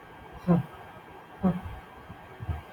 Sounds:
Sneeze